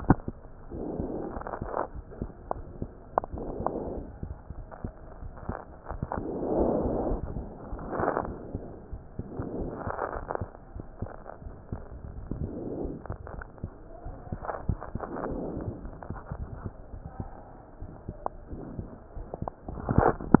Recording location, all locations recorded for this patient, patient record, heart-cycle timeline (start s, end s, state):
aortic valve (AV)
aortic valve (AV)+pulmonary valve (PV)+tricuspid valve (TV)+mitral valve (MV)
#Age: Child
#Sex: Female
#Height: 116.0 cm
#Weight: 21.6 kg
#Pregnancy status: False
#Murmur: Absent
#Murmur locations: nan
#Most audible location: nan
#Systolic murmur timing: nan
#Systolic murmur shape: nan
#Systolic murmur grading: nan
#Systolic murmur pitch: nan
#Systolic murmur quality: nan
#Diastolic murmur timing: nan
#Diastolic murmur shape: nan
#Diastolic murmur grading: nan
#Diastolic murmur pitch: nan
#Diastolic murmur quality: nan
#Outcome: Abnormal
#Campaign: 2015 screening campaign
0.00	15.81	unannotated
15.81	15.96	S1
15.96	16.06	systole
16.06	16.22	S2
16.22	16.36	diastole
16.36	16.50	S1
16.50	16.64	systole
16.64	16.74	S2
16.74	16.92	diastole
16.92	17.04	S1
17.04	17.18	systole
17.18	17.30	S2
17.30	17.77	diastole
17.77	17.90	S1
17.90	18.06	systole
18.06	18.17	S2
18.17	18.50	diastole
18.50	18.64	S1
18.64	18.76	systole
18.76	18.88	S2
18.88	19.12	diastole
19.12	19.26	S1
19.26	19.38	systole
19.38	19.50	S2
19.50	19.66	diastole
19.66	19.79	S1
19.79	20.40	unannotated